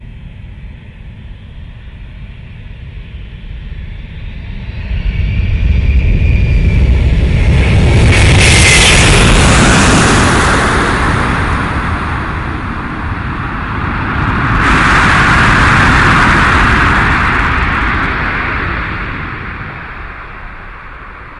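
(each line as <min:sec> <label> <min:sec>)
0:00.0 An airplane gradually getting nearer. 0:08.3
0:08.4 A plane is taking off. 0:13.0
0:13.0 An airplane is flying away. 0:21.4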